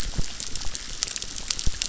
{"label": "biophony, chorus", "recorder": "SoundTrap 600"}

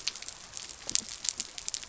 {"label": "biophony", "recorder": "SoundTrap 300"}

